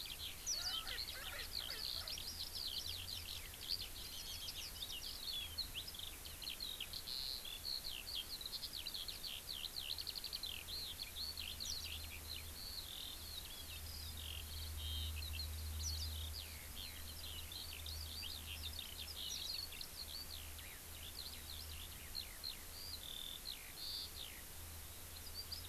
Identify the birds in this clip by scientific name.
Alauda arvensis, Zosterops japonicus, Pternistis erckelii